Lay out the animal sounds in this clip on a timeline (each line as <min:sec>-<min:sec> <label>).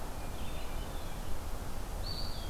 0:00.0-0:01.3 Hermit Thrush (Catharus guttatus)
0:00.3-0:02.5 Red-eyed Vireo (Vireo olivaceus)
0:01.9-0:02.5 Eastern Wood-Pewee (Contopus virens)